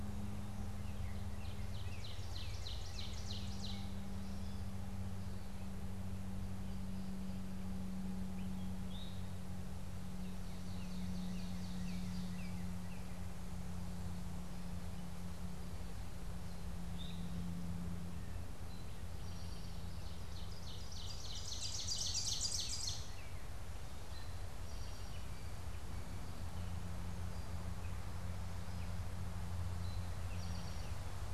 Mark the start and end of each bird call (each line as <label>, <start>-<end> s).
Ovenbird (Seiurus aurocapilla), 1.2-4.0 s
Northern Cardinal (Cardinalis cardinalis), 10.0-13.3 s
Ovenbird (Seiurus aurocapilla), 10.4-12.8 s
Eastern Towhee (Pipilo erythrophthalmus), 18.5-20.1 s
Ovenbird (Seiurus aurocapilla), 20.3-23.3 s
Eastern Towhee (Pipilo erythrophthalmus), 24.0-25.4 s
Eastern Towhee (Pipilo erythrophthalmus), 29.6-31.1 s